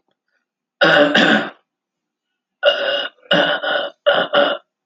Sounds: Throat clearing